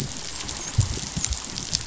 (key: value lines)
label: biophony, dolphin
recorder: SoundTrap 500